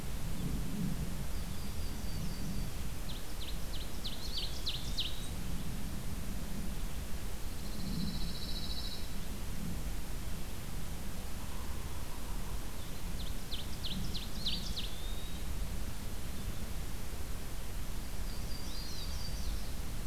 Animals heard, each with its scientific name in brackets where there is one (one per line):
Eastern Wood-Pewee (Contopus virens)
Yellow-rumped Warbler (Setophaga coronata)
Pine Warbler (Setophaga pinus)
Ovenbird (Seiurus aurocapilla)